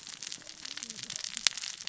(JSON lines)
{"label": "biophony, cascading saw", "recorder": "SoundTrap 600 or HydroMoth"}